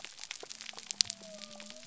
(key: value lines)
label: biophony
recorder: SoundTrap 300